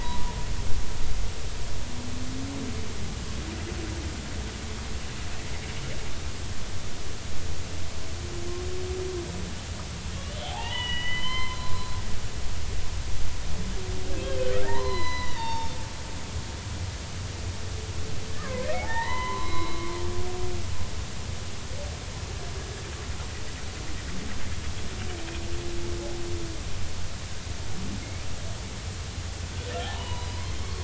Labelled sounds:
10.2	11.7	humpback whale, 0.80 to 4.2 kHz
14.2	15.8	humpback whale, 0.83 to 6.0 kHz
18.3	19.8	humpback whale, 0.80 to 4.1 kHz
29.8	30.3	humpback whale, 0.80 to 4.0 kHz

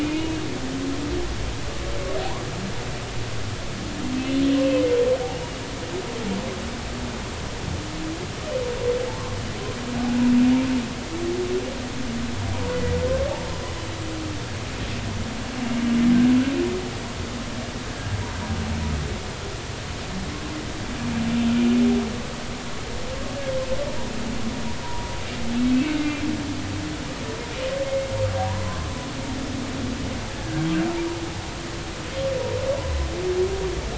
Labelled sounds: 12.7	12.9	humpback whale, 1.9 to 2.0 kHz
24.8	25.1	humpback whale, 0.90 to 1.0 kHz
28.4	28.6	humpback whale, 0.80 to 1.1 kHz

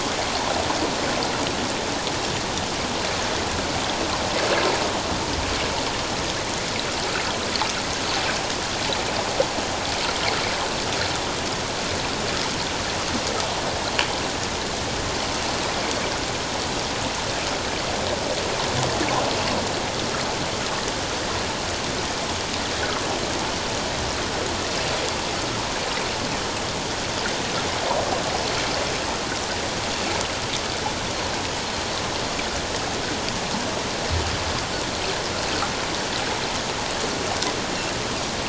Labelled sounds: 15.6	15.9	Pacific white-sided dolphin, 2.4 to 2.6 kHz
22.8	23.0	water noise, 1.2 to 1.8 kHz

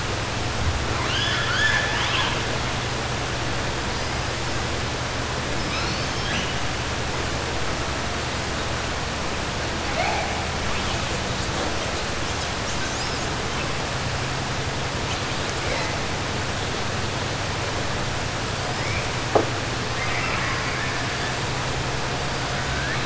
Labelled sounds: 0.9	2.4	killer whale, 0.88 to 6.8 kHz
5.6	6.5	killer whale, 1.6 to 6.4 kHz
19.9	21.0	killer whale, 1.1 to 2.9 kHz

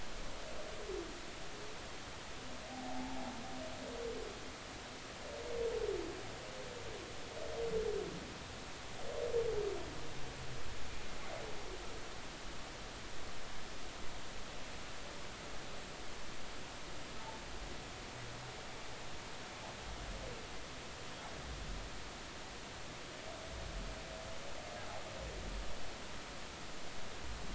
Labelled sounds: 2.7	3.3	humpback whale, 0.80 to 0.93 kHz

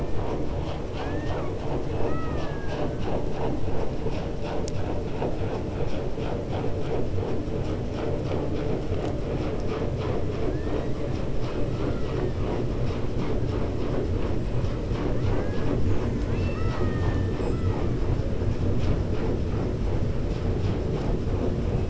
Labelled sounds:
0.5	1.5	killer whale, 0.74 to 6.3 kHz
15.8	17.9	killer whale, 0.53 to 7.6 kHz

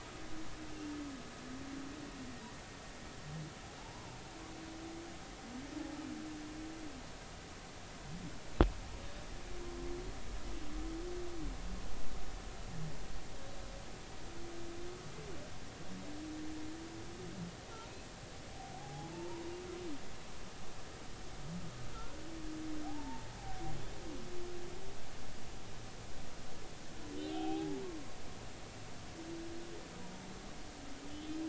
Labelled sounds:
3.8	4.1	humpback whale, 0.83 to 1.1 kHz
18.8	19.4	humpback whale, 0.80 to 0.99 kHz
21.9	22.2	humpback whale, 1.3 to 1.5 kHz
22.8	23.3	humpback whale, 0.80 to 0.96 kHz
27.2	27.8	humpback whale, 0.80 to 3.8 kHz
31.1	31.4	humpback whale, 2.9 to 3.5 kHz

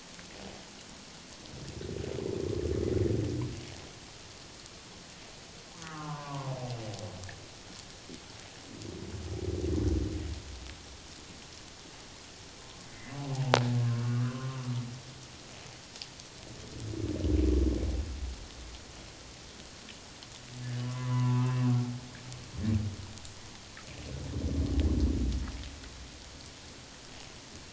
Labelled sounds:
5.8	6.5	humpback whale, 0.84 to 1.3 kHz
12.6	13.2	humpback whale, 0.91 to 2.1 kHz
14.0	14.7	humpback whale, 1.0 to 1.6 kHz
20.8	21.6	humpback whale, 0.84 to 2.7 kHz

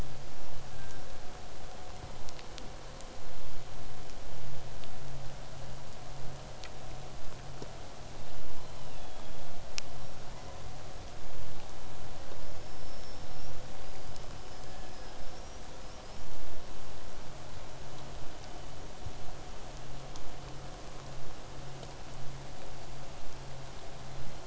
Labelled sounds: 8.2	9.6	killer whale, southern resident, 2.3 to 5.3 kHz
10.3	10.7	killer whale, southern resident, 0.50 to 2.2 kHz
12.4	16.4	killer whale, southern resident, 4.6 to 6.1 kHz

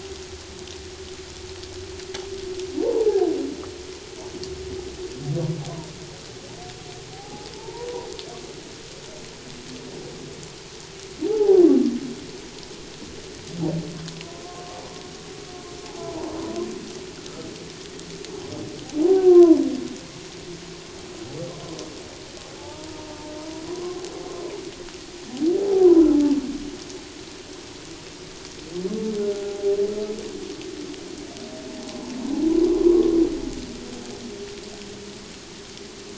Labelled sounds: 2.8	3.3	humpback whale, 0.78 to 1.1 kHz
7.1	7.9	humpback whale, 0.78 to 1.0 kHz
11.3	11.6	humpback whale, 0.78 to 0.94 kHz
19.3	19.6	humpback whale, 0.94 to 1.2 kHz
22.6	24.0	humpback whale, 0.84 to 1.1 kHz
25.5	26.0	humpback whale, 0.78 to 1.3 kHz
29.3	29.8	humpback whale, 0.78 to 0.84 kHz
31.9	32.1	humpback whale, 0.84 to 1.1 kHz
32.7	33.2	humpback whale, 0.94 to 1.2 kHz

